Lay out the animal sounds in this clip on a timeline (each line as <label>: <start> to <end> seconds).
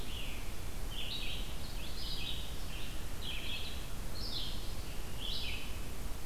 Red-eyed Vireo (Vireo olivaceus): 0.0 to 6.3 seconds